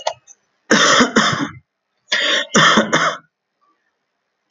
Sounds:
Cough